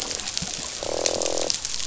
{"label": "biophony, croak", "recorder": "SoundTrap 500"}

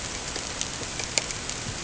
{"label": "ambient", "recorder": "HydroMoth"}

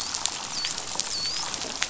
{"label": "biophony, dolphin", "recorder": "SoundTrap 500"}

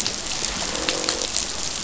{"label": "biophony, croak", "recorder": "SoundTrap 500"}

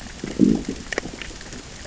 {"label": "biophony, growl", "recorder": "SoundTrap 600 or HydroMoth"}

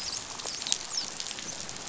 {"label": "biophony, dolphin", "recorder": "SoundTrap 500"}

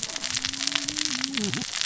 {"label": "biophony, cascading saw", "recorder": "SoundTrap 600 or HydroMoth"}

